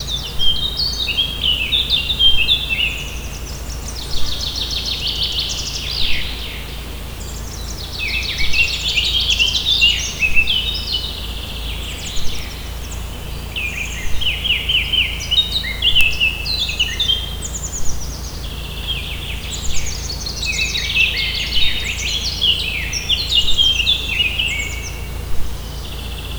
Is there a person speaking?
no